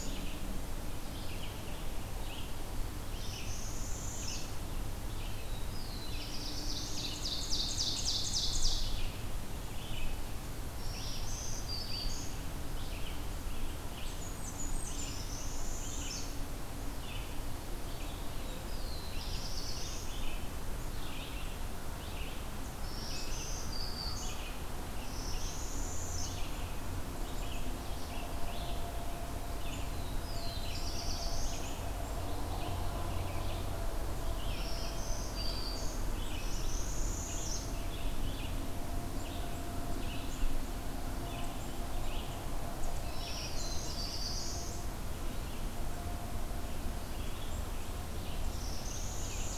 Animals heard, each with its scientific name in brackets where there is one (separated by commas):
Ovenbird (Seiurus aurocapilla), Blackburnian Warbler (Setophaga fusca), Northern Parula (Setophaga americana), Red-eyed Vireo (Vireo olivaceus), Black-throated Green Warbler (Setophaga virens), Black-throated Blue Warbler (Setophaga caerulescens)